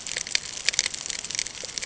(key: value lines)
label: ambient
recorder: HydroMoth